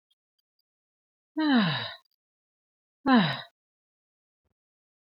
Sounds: Sigh